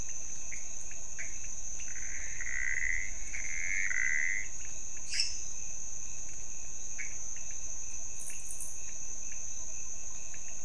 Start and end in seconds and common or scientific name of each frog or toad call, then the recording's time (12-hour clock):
0.0	10.6	pointedbelly frog
0.4	4.6	Pithecopus azureus
4.9	5.6	lesser tree frog
6.9	7.4	Pithecopus azureus
1:00am